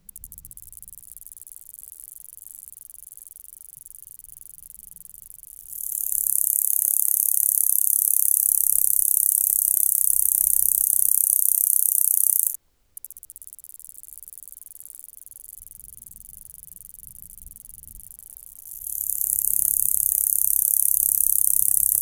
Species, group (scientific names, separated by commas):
Gampsocleis glabra, Orthoptera